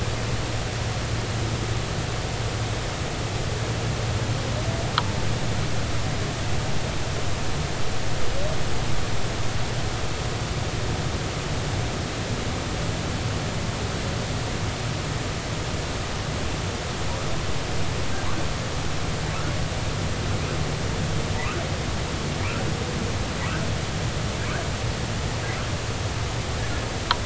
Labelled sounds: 21.4	21.6	humpback whale, 0.86 to 1.6 kHz

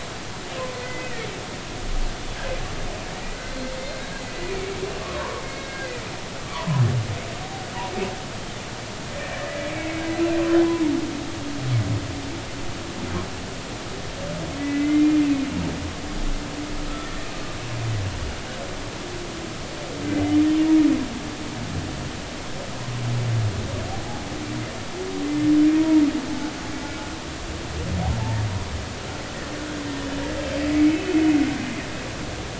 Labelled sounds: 0.6	1.3	humpback whale, 0.96 to 2.1 kHz
3.5	3.8	humpback whale, 4.1 to 4.2 kHz
5.0	5.9	humpback whale, 0.90 to 2.2 kHz
6.5	6.8	humpback whale, 0.93 to 1.2 kHz
9.2	10.0	humpback whale, 1.7 to 2.3 kHz
14.6	15.2	humpback whale, 1.9 to 2.2 kHz
25.8	26.0	humpback whale, 0.90 to 0.99 kHz
30.9	31.1	humpback whale, 2.9 to 3.1 kHz

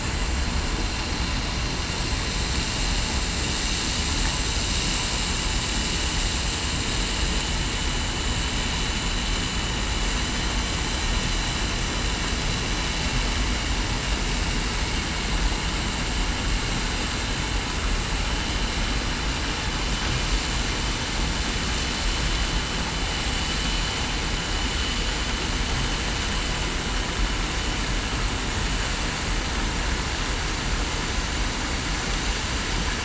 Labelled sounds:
6.4	6.8	vessel noise, 3.0 to 3.1 kHz

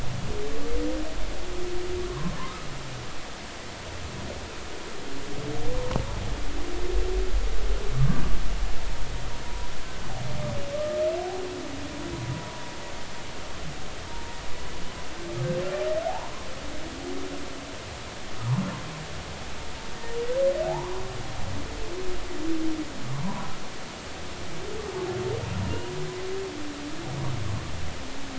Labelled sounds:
2.1	2.3	humpback whale, 0.96 to 1.2 kHz
9.4	9.7	humpback whale, 0.93 to 1.0 kHz
10.7	11.0	humpback whale, 1.15 to 1.25 kHz
14.1	14.4	humpback whale, 0.90 to 0.96 kHz
16.1	16.5	humpback whale, 0.80 to 1.1 kHz
18.4	18.6	humpback whale, 0.86 to 1.4 kHz
20.7	21.0	humpback whale, 0.80 to 1.2 kHz
23.2	23.5	humpback whale, 0.90 to 1.2 kHz
25.6	25.9	humpback whale, 2.7 to 2.9 kHz

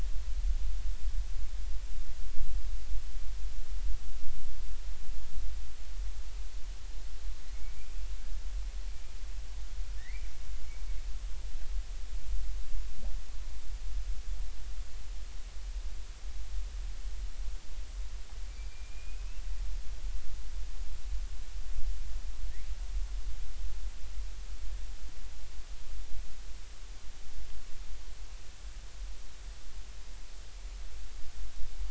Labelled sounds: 10.0	10.3	killer whale, Bigg's (transient), 1.7 to 2.5 kHz
18.5	19.3	killer whale, Bigg's (transient), 2.3 to 4.8 kHz

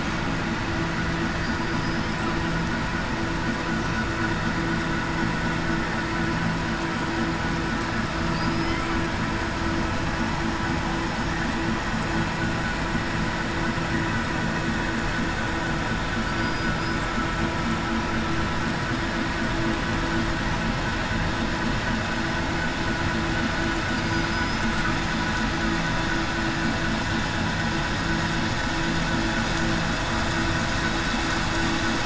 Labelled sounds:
1.4	2.0	killer whale, southern resident, 4.7 to 5.1 kHz
16.3	16.7	killer whale, southern resident, 4.8 to 5.0 kHz

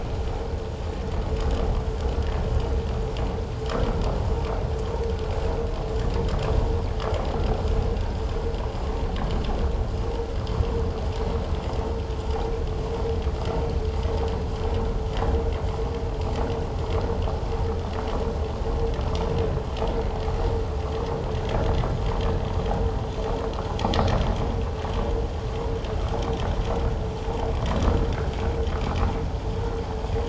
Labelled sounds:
28.7	29.0	vessel noise, 1.0 to 1.5 kHz

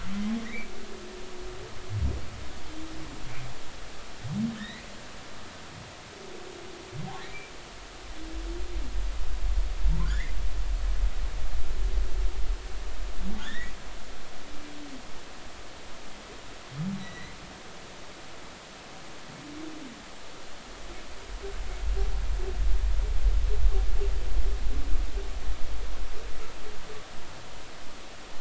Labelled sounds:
0.4	0.7	humpback whale, 1.9 to 2.4 kHz
4.6	4.8	humpback whale, 1.7 to 2.2 kHz
7.2	7.5	humpback whale, 2.1 to 2.4 kHz
10.0	10.3	humpback whale, 1.4 to 2.2 kHz
13.4	13.7	humpback whale, 1.6 to 3.8 kHz
17.0	17.4	humpback whale, 1.9 to 4.1 kHz

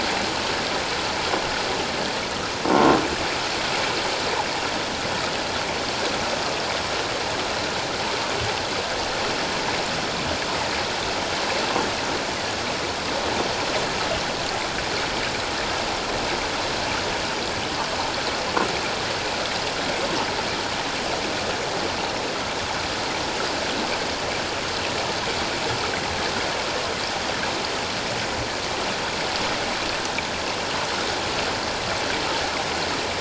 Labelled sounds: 2.7	3.0	croaking sound likely from a nearby submerged object, 0.88 to 1.1 kHz

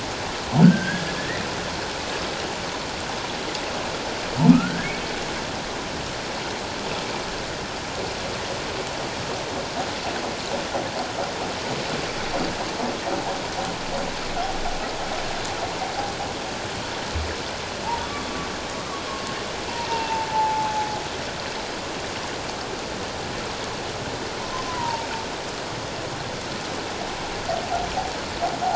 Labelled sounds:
0.6	1.4	humpback whale, 1.4 to 2.0 kHz
4.5	4.9	humpback whale, 1.2 to 1.8 kHz
17.8	18.1	humpback whale, 0.81 to 1.0 kHz
19.9	20.9	humpback whale, 0.81 to 2.8 kHz
24.4	25.1	humpback whale, 0.84 to 1.1 kHz

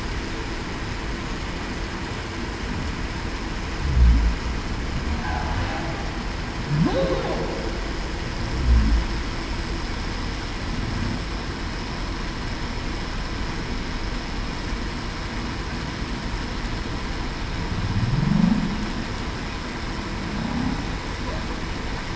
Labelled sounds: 6.8	7.3	humpback whale, 0.19 to 0.58 kHz
18.2	18.6	humpback whale, 0.19 to 0.28 kHz

